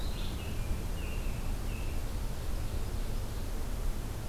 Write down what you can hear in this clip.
Red-eyed Vireo, American Robin, Ovenbird